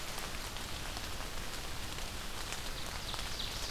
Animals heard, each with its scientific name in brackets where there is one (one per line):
Ovenbird (Seiurus aurocapilla)